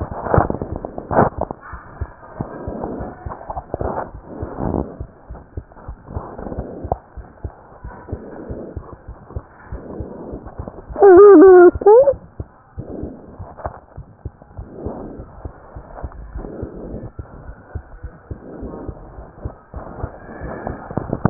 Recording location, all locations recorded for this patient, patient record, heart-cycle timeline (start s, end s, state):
pulmonary valve (PV)
aortic valve (AV)+pulmonary valve (PV)+tricuspid valve (TV)+mitral valve (MV)
#Age: Child
#Sex: Male
#Height: 115.0 cm
#Weight: 23.1 kg
#Pregnancy status: False
#Murmur: Present
#Murmur locations: aortic valve (AV)+tricuspid valve (TV)
#Most audible location: tricuspid valve (TV)
#Systolic murmur timing: Early-systolic
#Systolic murmur shape: Decrescendo
#Systolic murmur grading: I/VI
#Systolic murmur pitch: Low
#Systolic murmur quality: Harsh
#Diastolic murmur timing: nan
#Diastolic murmur shape: nan
#Diastolic murmur grading: nan
#Diastolic murmur pitch: nan
#Diastolic murmur quality: nan
#Outcome: Normal
#Campaign: 2015 screening campaign
0.00	12.76	unannotated
12.76	12.86	S1
12.86	12.98	systole
12.98	13.12	S2
13.12	13.38	diastole
13.38	13.47	S1
13.47	13.64	systole
13.64	13.74	S2
13.74	13.95	diastole
13.95	14.05	S1
14.05	14.24	systole
14.24	14.34	S2
14.34	14.56	diastole
14.56	14.66	S1
14.66	14.84	systole
14.84	14.94	S2
14.94	15.17	diastole
15.17	15.26	S1
15.26	15.43	systole
15.43	15.52	S2
15.52	15.74	diastole
15.74	15.83	S1
15.83	16.02	systole
16.02	16.09	S2
16.09	16.33	diastole
16.33	16.43	S1
16.43	16.60	systole
16.60	16.68	S2
16.68	16.90	diastole
16.90	16.99	S1
16.99	17.17	systole
17.17	17.25	S2
17.25	17.46	diastole
17.46	17.55	S1
17.55	17.73	systole
17.73	17.81	S2
17.81	17.99	diastole
17.99	18.12	S1
18.12	18.26	systole
18.26	18.37	S2
18.37	18.60	diastole
18.60	18.72	S1
18.72	18.84	systole
18.84	18.94	S2
18.94	19.14	diastole
19.14	19.26	S1
19.26	19.40	systole
19.40	19.51	S2
19.51	19.72	diastole
19.72	19.90	S1
19.90	19.98	systole
19.98	20.10	S2
20.10	21.30	unannotated